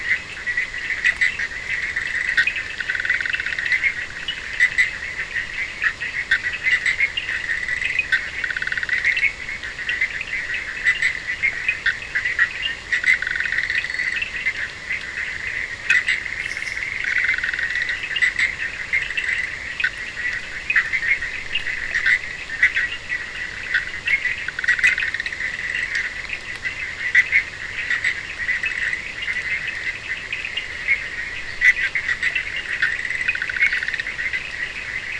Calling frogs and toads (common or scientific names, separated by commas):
Cochran's lime tree frog, Bischoff's tree frog